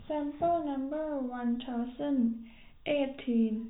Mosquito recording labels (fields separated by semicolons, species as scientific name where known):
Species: no mosquito; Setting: cup